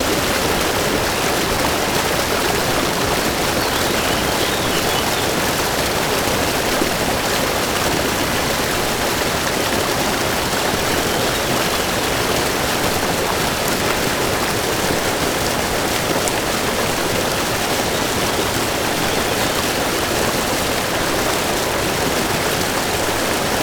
Is it wet outside?
yes